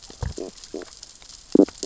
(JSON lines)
{"label": "biophony, stridulation", "recorder": "SoundTrap 600 or HydroMoth"}